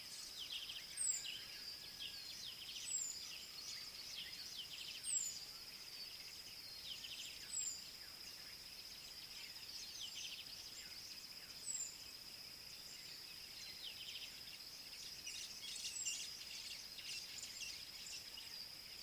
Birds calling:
Southern Black-Flycatcher (Melaenornis pammelaina)

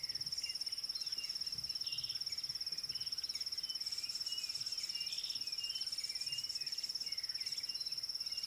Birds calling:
Rattling Cisticola (Cisticola chiniana)

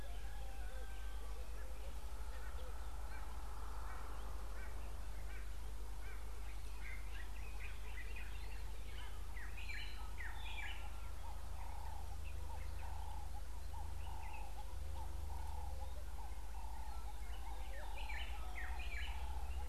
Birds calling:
White-browed Robin-Chat (Cossypha heuglini), Common Bulbul (Pycnonotus barbatus)

